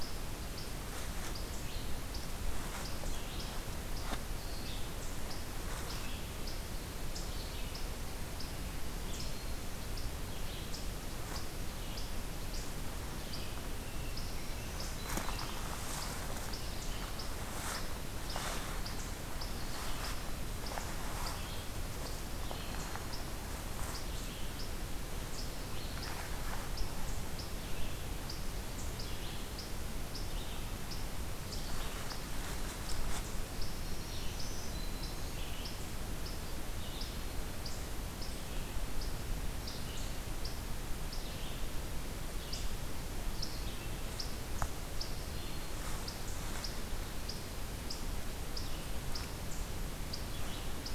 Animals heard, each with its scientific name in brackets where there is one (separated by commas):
Black-throated Green Warbler (Setophaga virens)